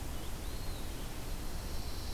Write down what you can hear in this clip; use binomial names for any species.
Contopus virens, Setophaga pinus